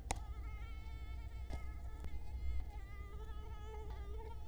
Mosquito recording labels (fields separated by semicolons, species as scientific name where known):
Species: Culex quinquefasciatus; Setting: cup